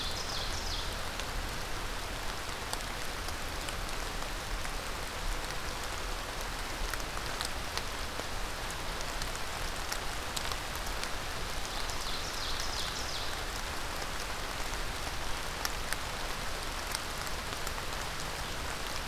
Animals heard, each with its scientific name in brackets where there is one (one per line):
Ovenbird (Seiurus aurocapilla)